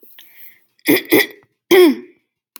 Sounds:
Throat clearing